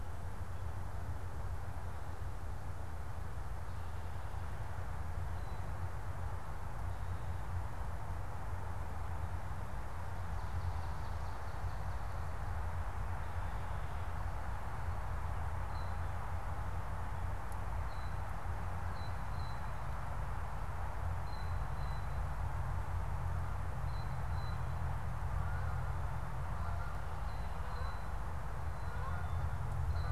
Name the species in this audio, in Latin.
unidentified bird, Branta canadensis, Cyanocitta cristata